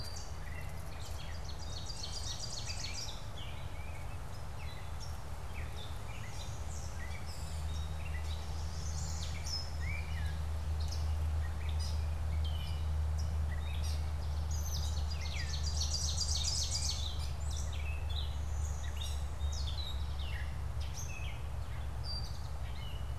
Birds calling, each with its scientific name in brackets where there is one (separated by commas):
Blue-winged Warbler (Vermivora cyanoptera), Ovenbird (Seiurus aurocapilla), Eastern Towhee (Pipilo erythrophthalmus), Gray Catbird (Dumetella carolinensis), Tufted Titmouse (Baeolophus bicolor), Chestnut-sided Warbler (Setophaga pensylvanica)